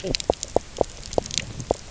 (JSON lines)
{"label": "biophony, knock croak", "recorder": "SoundTrap 300"}